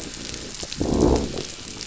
{"label": "biophony, growl", "recorder": "SoundTrap 500"}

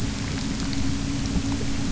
{"label": "anthrophony, boat engine", "recorder": "SoundTrap 300"}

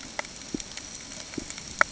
{"label": "ambient", "recorder": "HydroMoth"}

